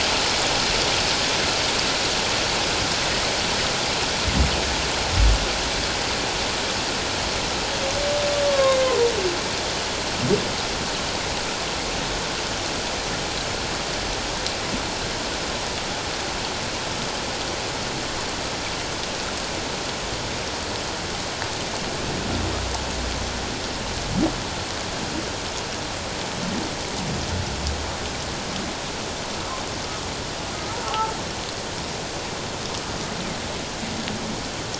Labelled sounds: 8.5	8.8	humpback whale, 1.0 to 1.1 kHz
30.8	31.1	humpback whale, 0.78 to 1.4 kHz

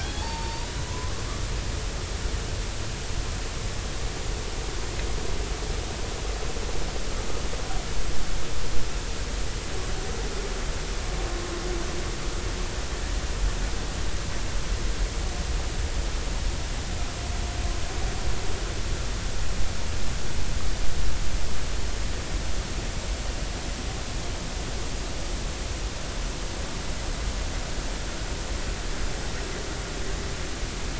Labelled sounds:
0.0	1.2	humpback whale, 0.80 to 4.8 kHz

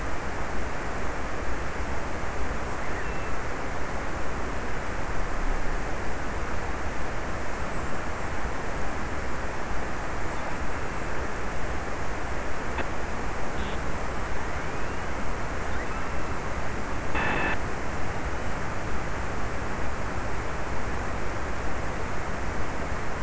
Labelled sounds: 2.2	4.1	killer whale, offshore, 2.4 to 2.9 kHz
10.1	11.3	killer whale, offshore, 2.3 to 2.9 kHz

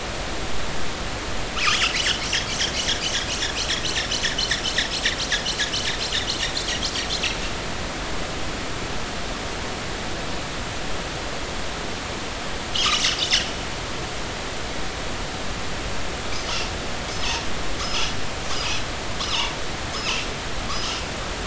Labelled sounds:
1.7	2.2	killer whale, northern resident, 2.6 to 3.6 kHz
17.8	18.2	killer whale, northern resident, 1.1 to 3.0 kHz
19.2	20.3	killer whale, northern resident, 2.4 to 3.1 kHz
20.7	21.0	killer whale, northern resident, 2.8 to 3.2 kHz

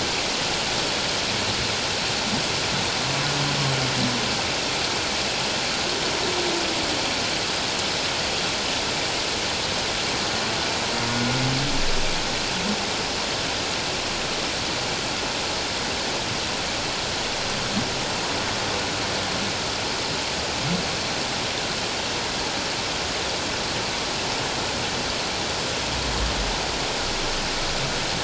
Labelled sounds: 11.1	11.4	humpback whale, 1.4 to 1.5 kHz

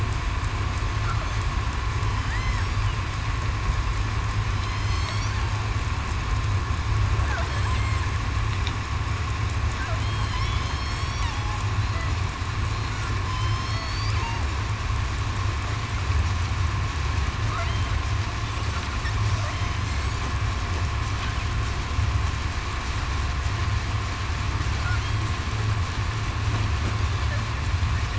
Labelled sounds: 2.0	2.8	killer whale, southern resident, 3.0 to 5.7 kHz
4.5	5.1	killer whale, southern resident, 3.0 to 3.3 kHz
10.0	11.2	killer whale, southern resident, 3.0 to 5.7 kHz
13.2	13.9	killer whale, southern resident, 5.1 to 5.5 kHz

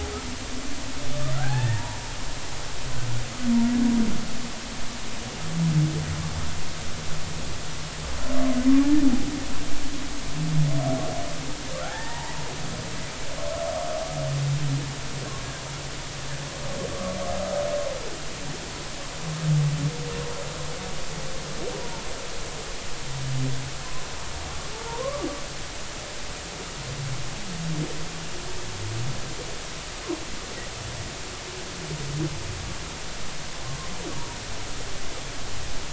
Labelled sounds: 1.3	2.1	humpback whale, 0.80 to 1.9 kHz
11.9	12.3	humpback whale, 0.80 to 1.9 kHz
16.9	17.2	humpback whale, 1.1 to 1.3 kHz
21.8	22.0	humpback whale, 0.86 to 0.99 kHz
24.9	25.3	humpback whale, 0.86 to 1.2 kHz

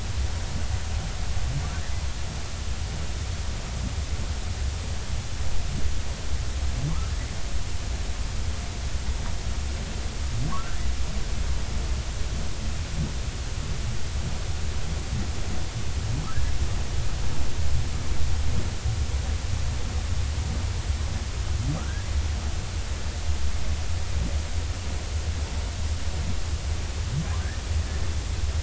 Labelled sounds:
21.8	22.1	humpback whale, 1.1 to 1.7 kHz

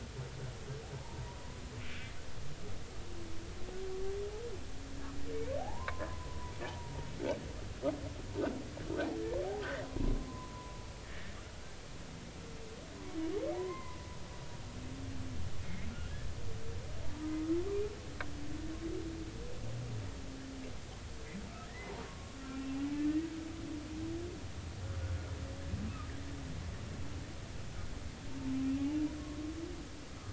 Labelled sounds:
5.6	6.9	humpback whale, 0.80 to 1.2 kHz
9.8	11.4	humpback whale, 0.93 to 2.0 kHz
13.5	14.1	humpback whale, 0.90 to 2.1 kHz
15.6	15.9	humpback whale, 2.1 to 2.2 kHz
21.7	22.7	humpback whale, 1.0 to 2.1 kHz

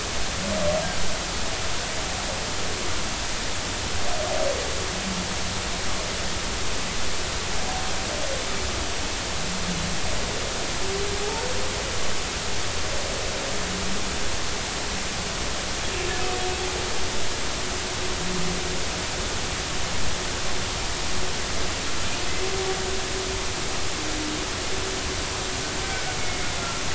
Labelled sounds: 25.8	26.2	humpback whale, 1.4 to 2.3 kHz

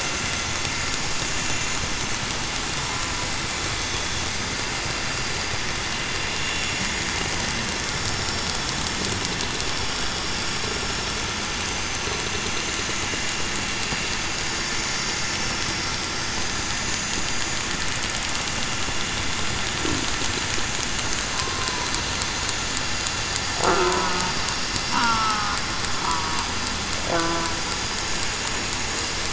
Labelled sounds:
24.9	25.2	killer whale, southern resident, 0.87 to 1.0 kHz

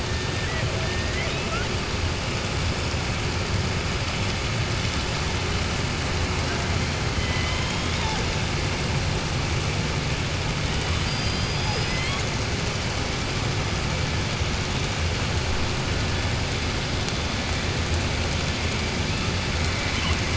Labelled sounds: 0.8	1.7	killer whale, southern resident, 0.62 to 3.9 kHz
7.1	8.1	killer whale, southern resident, 1.1 to 4.0 kHz
10.8	12.2	killer whale, southern resident, 0.52 to 5.1 kHz

